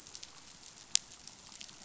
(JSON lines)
{"label": "biophony", "recorder": "SoundTrap 500"}